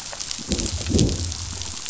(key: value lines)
label: biophony, growl
recorder: SoundTrap 500